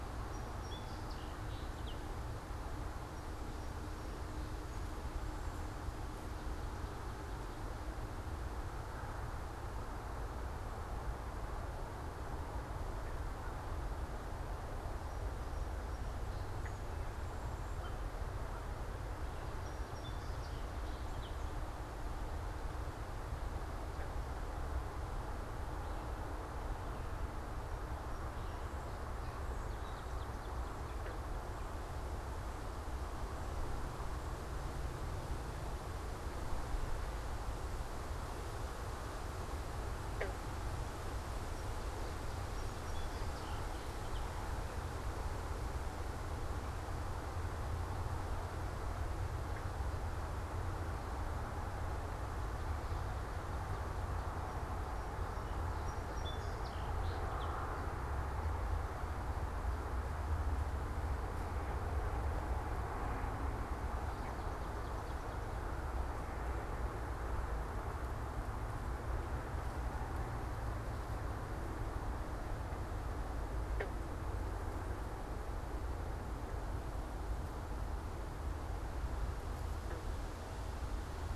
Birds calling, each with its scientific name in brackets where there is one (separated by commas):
Swamp Sparrow (Melospiza georgiana), Song Sparrow (Melospiza melodia), American Crow (Corvus brachyrhynchos)